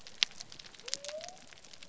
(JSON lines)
{"label": "biophony", "recorder": "SoundTrap 300"}